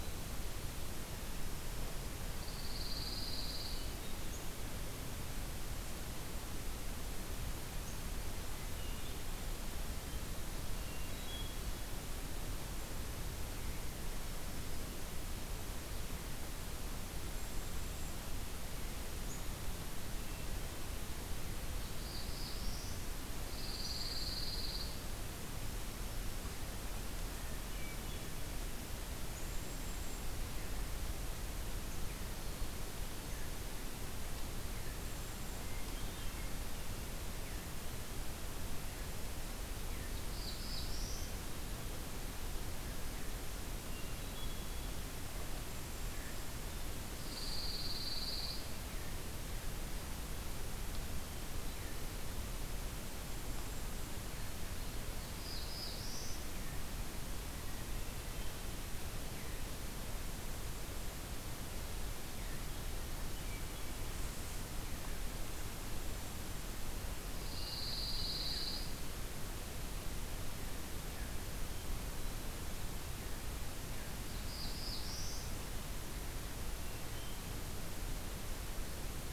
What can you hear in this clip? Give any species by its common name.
Pine Warbler, Hermit Thrush, Black-throated Green Warbler, Black-capped Chickadee, Black-throated Blue Warbler, Golden-crowned Kinglet, Veery